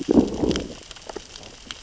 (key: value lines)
label: biophony, growl
recorder: SoundTrap 600 or HydroMoth